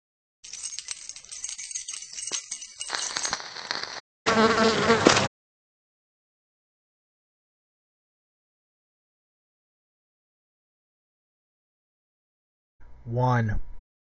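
At the start, keys jangle. Over it, about 3 seconds in, fire can be heard. Then, about 4 seconds in, buzzing is audible. Finally, about 13 seconds in, someone says "one."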